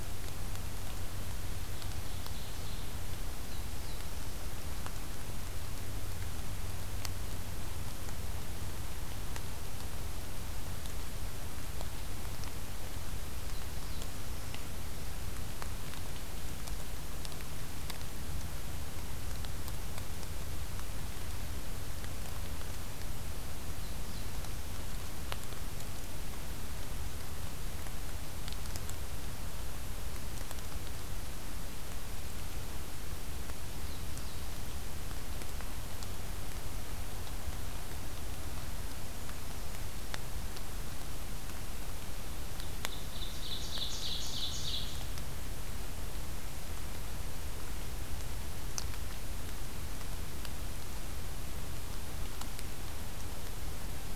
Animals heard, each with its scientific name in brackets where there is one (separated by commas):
Ovenbird (Seiurus aurocapilla), Black-throated Blue Warbler (Setophaga caerulescens), Brown Creeper (Certhia americana)